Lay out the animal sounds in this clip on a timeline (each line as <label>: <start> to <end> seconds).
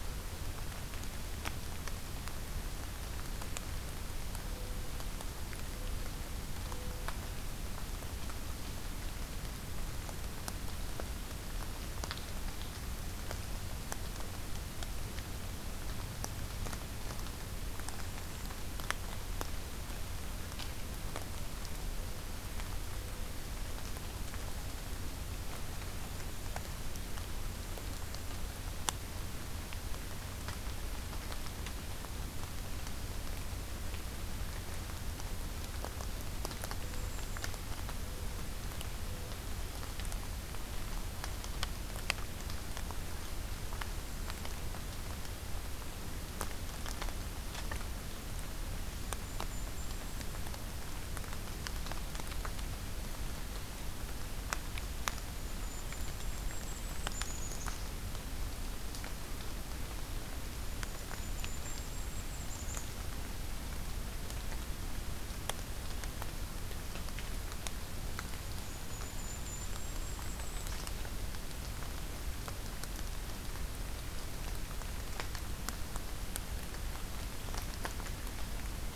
Mourning Dove (Zenaida macroura): 4.5 to 7.2 seconds
Mourning Dove (Zenaida macroura): 21.7 to 23.5 seconds
Mourning Dove (Zenaida macroura): 36.7 to 39.4 seconds
Golden-crowned Kinglet (Regulus satrapa): 36.7 to 37.6 seconds
Golden-crowned Kinglet (Regulus satrapa): 44.0 to 44.5 seconds
Golden-crowned Kinglet (Regulus satrapa): 48.8 to 50.5 seconds
Golden-crowned Kinglet (Regulus satrapa): 54.7 to 57.8 seconds
Golden-crowned Kinglet (Regulus satrapa): 60.4 to 62.9 seconds
Golden-crowned Kinglet (Regulus satrapa): 68.5 to 71.0 seconds